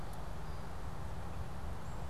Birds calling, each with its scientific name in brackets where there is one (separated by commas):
Black-capped Chickadee (Poecile atricapillus)